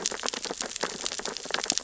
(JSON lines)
{"label": "biophony, sea urchins (Echinidae)", "recorder": "SoundTrap 600 or HydroMoth"}